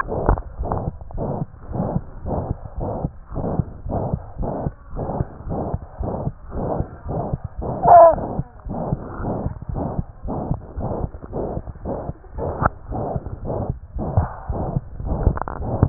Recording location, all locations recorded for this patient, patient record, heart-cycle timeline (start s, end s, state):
aortic valve (AV)
aortic valve (AV)+pulmonary valve (PV)+tricuspid valve (TV)+mitral valve (MV)
#Age: Child
#Sex: Male
#Height: 99.0 cm
#Weight: 16.7 kg
#Pregnancy status: False
#Murmur: Present
#Murmur locations: aortic valve (AV)+mitral valve (MV)+pulmonary valve (PV)+tricuspid valve (TV)
#Most audible location: pulmonary valve (PV)
#Systolic murmur timing: Holosystolic
#Systolic murmur shape: Plateau
#Systolic murmur grading: III/VI or higher
#Systolic murmur pitch: High
#Systolic murmur quality: Blowing
#Diastolic murmur timing: nan
#Diastolic murmur shape: nan
#Diastolic murmur grading: nan
#Diastolic murmur pitch: nan
#Diastolic murmur quality: nan
#Outcome: Abnormal
#Campaign: 2015 screening campaign
0.00	0.12	diastole
0.12	0.18	S1
0.18	0.26	systole
0.26	0.36	S2
0.36	0.58	diastole
0.58	0.67	S1
0.67	0.84	systole
0.84	0.92	S2
0.92	1.13	diastole
1.13	1.23	S1
1.23	1.39	systole
1.39	1.46	S2
1.46	1.69	diastole
1.69	1.77	S1
1.77	1.94	systole
1.94	2.04	S2
2.04	2.24	diastole
2.24	2.31	S1
2.31	2.48	systole
2.48	2.58	S2
2.58	2.76	diastole
2.76	2.83	S1
2.83	3.02	systole
3.02	3.12	S2
3.12	3.31	diastole
3.31	3.39	S1
3.39	3.54	systole
3.54	3.66	S2
3.66	3.85	diastole
3.85	3.94	S1
3.94	4.12	systole
4.12	4.22	S2
4.22	4.39	diastole
4.39	4.48	S1
4.48	4.64	systole
4.64	4.74	S2
4.74	4.92	diastole
4.92	5.02	S1
5.02	5.16	systole
5.16	5.26	S2
5.26	5.44	diastole
5.44	5.54	S1
5.54	5.72	systole
5.72	5.80	S2
5.80	5.98	diastole
5.98	6.05	S1
6.05	6.24	systole
6.24	6.32	S2
6.32	6.53	diastole
6.53	6.61	S1
6.61	6.76	systole
6.76	6.86	S2
6.86	7.04	diastole
7.04	7.14	S1
7.14	7.32	systole
7.32	7.38	S2
7.38	7.58	diastole
7.58	7.67	S1
7.67	7.80	systole
7.80	7.89	S2
7.89	8.14	diastole
8.14	8.21	S1
8.21	8.34	systole
8.34	8.44	S2
8.44	8.64	diastole
8.64	8.73	S1
8.73	8.88	systole
8.88	9.00	S2
9.00	9.19	diastole
9.19	9.27	S1
9.27	9.44	systole
9.44	9.52	S2
9.52	9.72	diastole
9.72	9.79	S1
9.79	9.94	systole
9.94	10.04	S2
10.04	10.24	diastole
10.24	10.32	S1
10.32	10.48	systole
10.48	10.60	S2
10.60	10.75	diastole
10.75	10.86	S1
10.86	11.02	systole
11.02	11.10	S2
11.10	11.34	diastole
11.34	11.44	S1
11.44	11.52	systole
11.52	11.62	S2
11.62	11.86	diastole
11.86	12.00	S1
12.00	12.08	systole
12.08	12.16	S2
12.16	12.35	diastole
12.35	12.45	S1
12.45	12.60	systole
12.60	12.72	S2
12.72	12.90	diastole
12.90	12.98	S1
12.98	13.14	systole
13.14	13.24	S2
13.24	13.44	diastole
13.44	13.58	S1
13.58	13.66	systole
13.66	13.76	S2
13.76	13.96	diastole
13.96	14.04	S1
14.04	14.16	systole
14.16	14.30	S2
14.30	14.47	diastole
14.47	14.58	S1
14.58	14.74	systole
14.74	14.84	S2
14.84	15.03	diastole